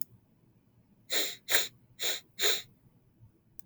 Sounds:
Sniff